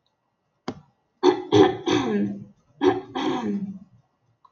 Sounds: Throat clearing